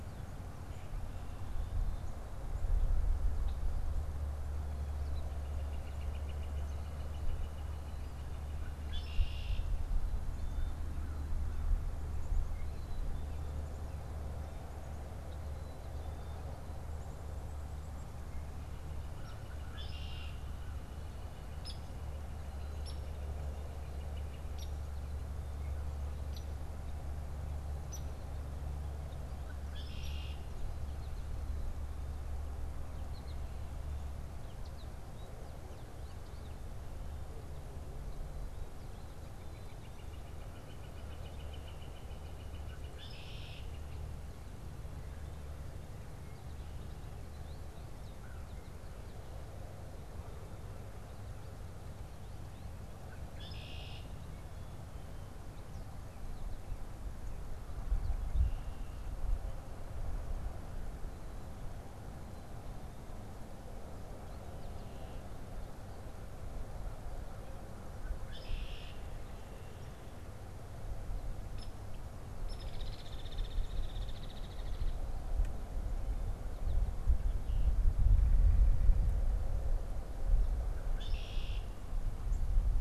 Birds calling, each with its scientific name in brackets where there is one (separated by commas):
Black-capped Chickadee (Poecile atricapillus), unidentified bird, Northern Flicker (Colaptes auratus), American Goldfinch (Spinus tristis), Red-winged Blackbird (Agelaius phoeniceus), Hairy Woodpecker (Dryobates villosus), American Crow (Corvus brachyrhynchos)